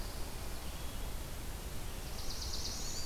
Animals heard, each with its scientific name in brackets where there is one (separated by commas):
Red-eyed Vireo (Vireo olivaceus), Black-throated Blue Warbler (Setophaga caerulescens), Wood Thrush (Hylocichla mustelina)